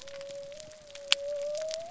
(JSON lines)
{"label": "biophony", "recorder": "SoundTrap 300"}